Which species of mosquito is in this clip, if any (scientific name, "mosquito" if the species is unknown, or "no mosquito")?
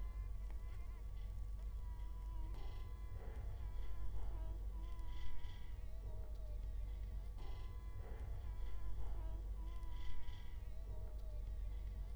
Culex quinquefasciatus